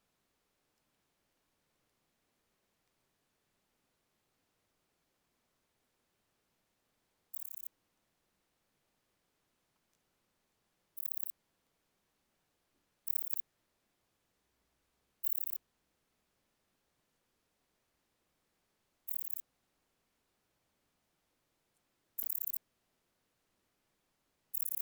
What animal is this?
Pachytrachis gracilis, an orthopteran